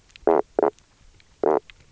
{"label": "biophony, knock croak", "recorder": "SoundTrap 300"}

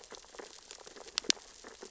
{"label": "biophony, sea urchins (Echinidae)", "recorder": "SoundTrap 600 or HydroMoth"}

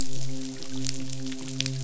{"label": "biophony, midshipman", "recorder": "SoundTrap 500"}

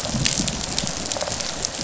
{"label": "biophony, rattle response", "recorder": "SoundTrap 500"}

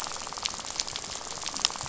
{"label": "biophony, rattle", "recorder": "SoundTrap 500"}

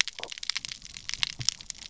{"label": "biophony, stridulation", "recorder": "SoundTrap 300"}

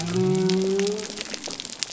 {"label": "biophony", "recorder": "SoundTrap 300"}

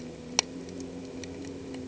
{"label": "anthrophony, boat engine", "recorder": "HydroMoth"}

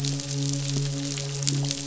{"label": "biophony, midshipman", "recorder": "SoundTrap 500"}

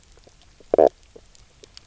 {"label": "biophony, knock croak", "recorder": "SoundTrap 300"}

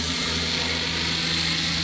{"label": "anthrophony, boat engine", "recorder": "SoundTrap 500"}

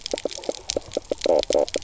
{"label": "biophony, knock croak", "recorder": "SoundTrap 300"}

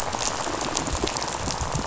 {"label": "biophony, rattle", "recorder": "SoundTrap 500"}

